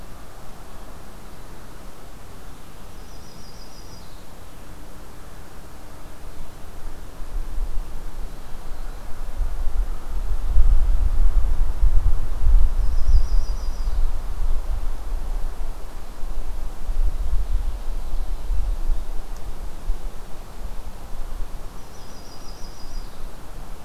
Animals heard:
American Crow (Corvus brachyrhynchos), Yellow-rumped Warbler (Setophaga coronata)

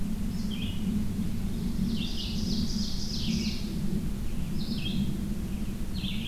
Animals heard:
Ovenbird (Seiurus aurocapilla), Red-eyed Vireo (Vireo olivaceus)

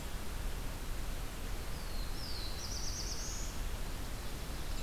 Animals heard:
Black-throated Blue Warbler (Setophaga caerulescens)

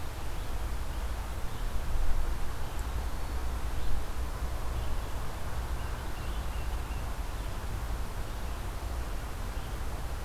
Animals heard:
Tufted Titmouse (Baeolophus bicolor)

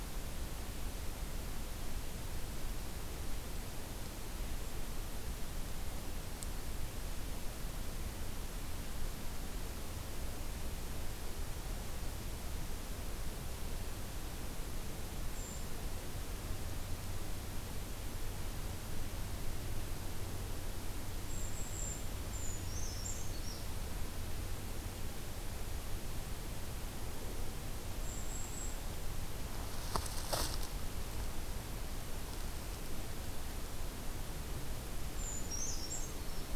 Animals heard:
Brown Creeper (Certhia americana)

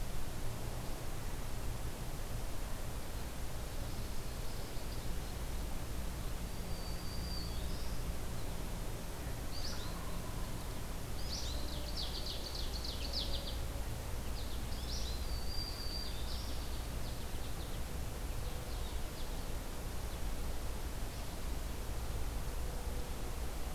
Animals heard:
Ovenbird (Seiurus aurocapilla), Black-throated Green Warbler (Setophaga virens), Wild Turkey (Meleagris gallopavo), American Goldfinch (Spinus tristis)

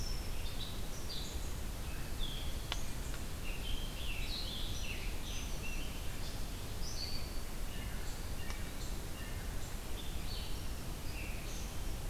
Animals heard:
Scarlet Tanager (Piranga olivacea), Red-eyed Vireo (Vireo olivaceus)

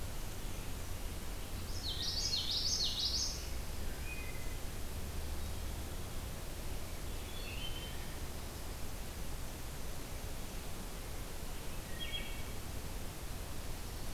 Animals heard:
Common Yellowthroat (Geothlypis trichas), Wood Thrush (Hylocichla mustelina)

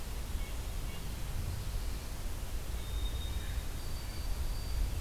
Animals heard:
White-throated Sparrow (Zonotrichia albicollis)

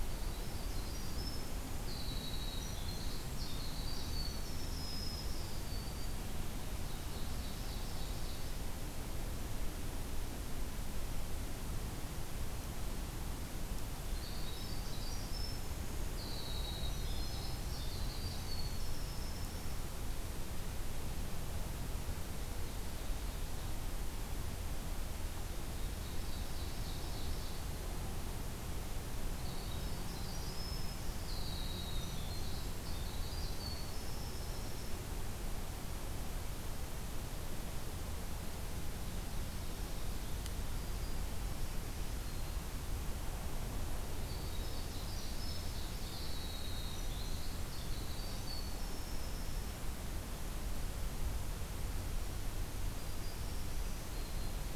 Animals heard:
Ovenbird (Seiurus aurocapilla), Winter Wren (Troglodytes hiemalis), Black-throated Green Warbler (Setophaga virens)

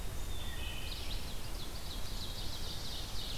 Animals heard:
Ovenbird (Seiurus aurocapilla), Wood Thrush (Hylocichla mustelina)

